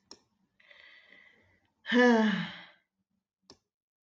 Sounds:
Sigh